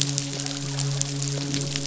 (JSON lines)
{"label": "biophony, midshipman", "recorder": "SoundTrap 500"}